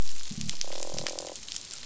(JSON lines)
{"label": "biophony", "recorder": "SoundTrap 500"}
{"label": "biophony, croak", "recorder": "SoundTrap 500"}